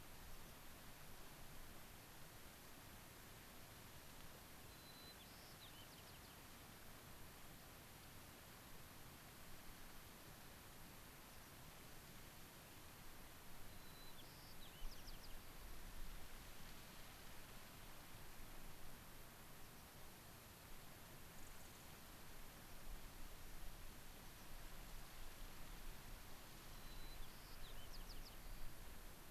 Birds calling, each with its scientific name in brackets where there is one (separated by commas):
unidentified bird, Dark-eyed Junco (Junco hyemalis), White-crowned Sparrow (Zonotrichia leucophrys)